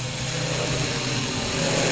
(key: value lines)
label: anthrophony, boat engine
recorder: SoundTrap 500